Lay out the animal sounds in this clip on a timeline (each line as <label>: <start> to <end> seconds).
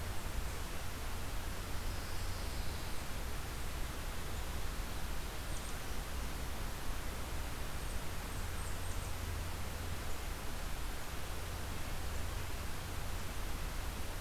Black-capped Chickadee (Poecile atricapillus): 0.0 to 9.3 seconds
Pine Warbler (Setophaga pinus): 1.8 to 3.1 seconds